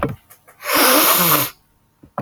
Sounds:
Sniff